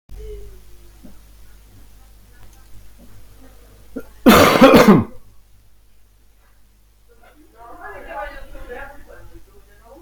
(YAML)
expert_labels:
- quality: ok
  cough_type: wet
  dyspnea: false
  wheezing: false
  stridor: false
  choking: false
  congestion: false
  nothing: true
  diagnosis: lower respiratory tract infection
  severity: mild